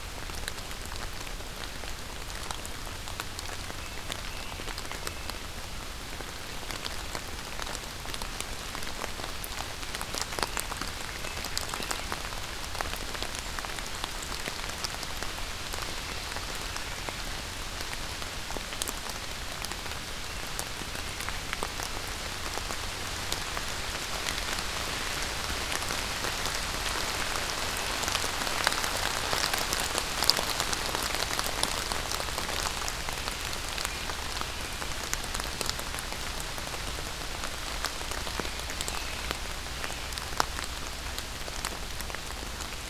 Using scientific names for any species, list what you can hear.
Turdus migratorius